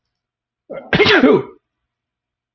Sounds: Sneeze